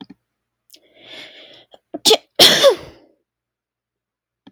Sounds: Sneeze